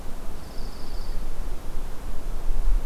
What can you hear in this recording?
Dark-eyed Junco